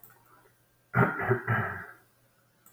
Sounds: Cough